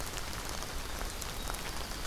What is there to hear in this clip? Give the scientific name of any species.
Troglodytes hiemalis